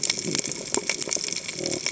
{"label": "biophony", "recorder": "HydroMoth"}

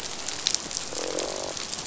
{"label": "biophony, croak", "recorder": "SoundTrap 500"}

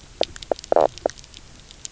{"label": "biophony, knock croak", "recorder": "SoundTrap 300"}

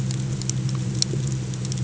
{"label": "anthrophony, boat engine", "recorder": "HydroMoth"}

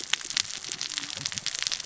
{"label": "biophony, cascading saw", "recorder": "SoundTrap 600 or HydroMoth"}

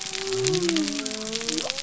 {"label": "biophony", "recorder": "SoundTrap 300"}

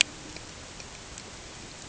{"label": "ambient", "recorder": "HydroMoth"}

